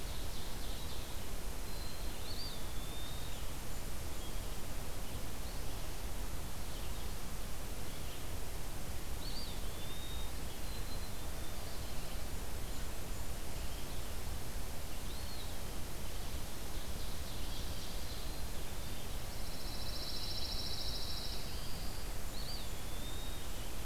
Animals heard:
Black-capped Chickadee (Poecile atricapillus), Blackburnian Warbler (Setophaga fusca), Ovenbird (Seiurus aurocapilla), Eastern Wood-Pewee (Contopus virens), Pine Warbler (Setophaga pinus), Red-eyed Vireo (Vireo olivaceus)

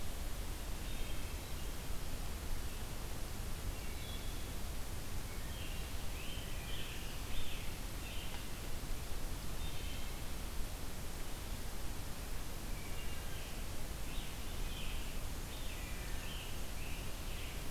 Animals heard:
Wood Thrush (Hylocichla mustelina), Scarlet Tanager (Piranga olivacea)

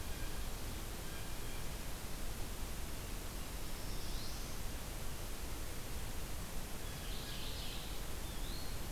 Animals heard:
Mourning Warbler (Geothlypis philadelphia), Blue Jay (Cyanocitta cristata), Eastern Wood-Pewee (Contopus virens)

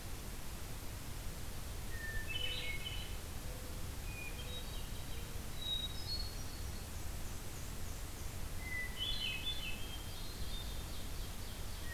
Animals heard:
Black-and-white Warbler (Mniotilta varia), Ovenbird (Seiurus aurocapilla), Hermit Thrush (Catharus guttatus), Mourning Dove (Zenaida macroura)

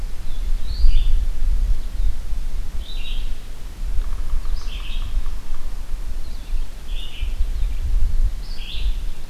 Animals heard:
Red-eyed Vireo (Vireo olivaceus), Yellow-bellied Sapsucker (Sphyrapicus varius)

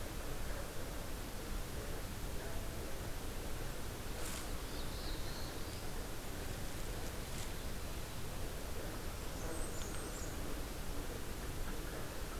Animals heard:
Blackburnian Warbler (Setophaga fusca), Black-throated Blue Warbler (Setophaga caerulescens)

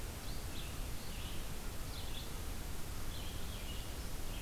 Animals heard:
Red-eyed Vireo (Vireo olivaceus)

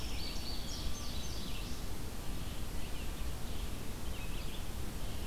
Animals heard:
Indigo Bunting (Passerina cyanea), Red-eyed Vireo (Vireo olivaceus)

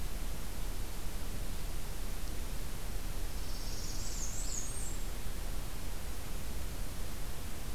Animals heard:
Northern Parula (Setophaga americana), Black-and-white Warbler (Mniotilta varia)

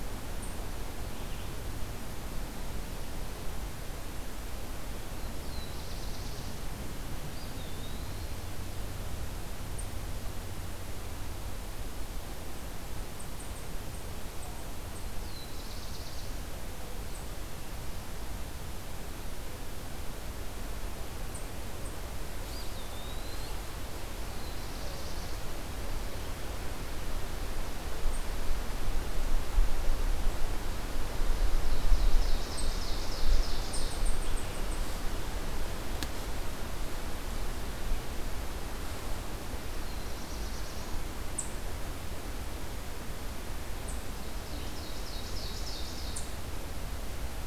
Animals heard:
Black-throated Blue Warbler (Setophaga caerulescens), Eastern Wood-Pewee (Contopus virens), Ovenbird (Seiurus aurocapilla)

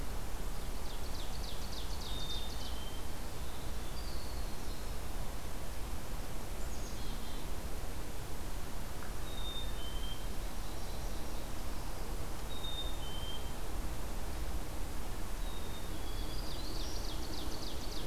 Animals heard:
American Goldfinch (Spinus tristis), Black-capped Chickadee (Poecile atricapillus), Ovenbird (Seiurus aurocapilla), Black-throated Green Warbler (Setophaga virens)

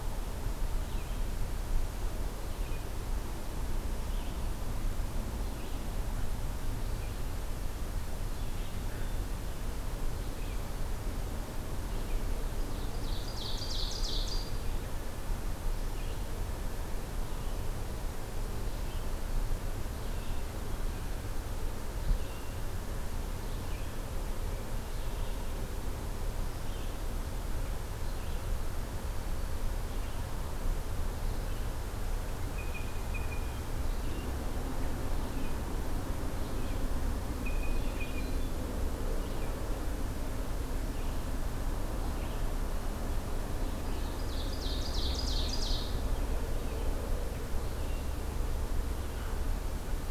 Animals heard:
Blue Jay (Cyanocitta cristata), Ovenbird (Seiurus aurocapilla), Red-eyed Vireo (Vireo olivaceus), Hermit Thrush (Catharus guttatus)

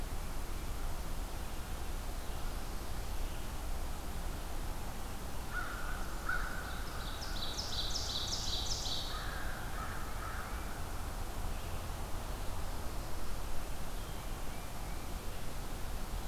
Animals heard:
American Crow (Corvus brachyrhynchos), Ovenbird (Seiurus aurocapilla), Tufted Titmouse (Baeolophus bicolor)

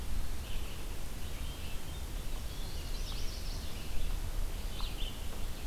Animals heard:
Hermit Thrush (Catharus guttatus), Red-eyed Vireo (Vireo olivaceus), Chestnut-sided Warbler (Setophaga pensylvanica)

